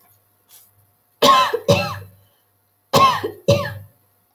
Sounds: Cough